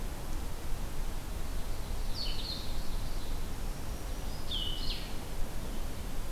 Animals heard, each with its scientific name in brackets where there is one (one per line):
Black-throated Green Warbler (Setophaga virens)
Blue-headed Vireo (Vireo solitarius)
Ovenbird (Seiurus aurocapilla)